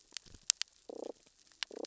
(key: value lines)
label: biophony, damselfish
recorder: SoundTrap 600 or HydroMoth